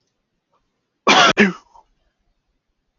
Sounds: Sneeze